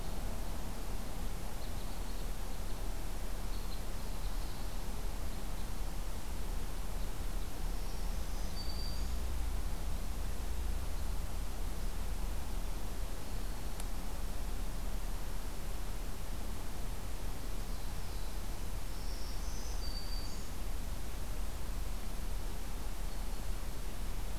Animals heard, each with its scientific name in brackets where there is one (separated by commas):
Black-throated Blue Warbler (Setophaga caerulescens), Red Crossbill (Loxia curvirostra), Black-throated Green Warbler (Setophaga virens)